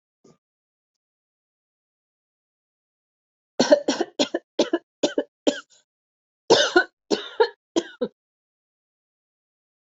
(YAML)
expert_labels:
- quality: good
  cough_type: wet
  dyspnea: false
  wheezing: false
  stridor: false
  choking: false
  congestion: false
  nothing: true
  diagnosis: upper respiratory tract infection
  severity: mild
age: 38
gender: female
respiratory_condition: false
fever_muscle_pain: false
status: healthy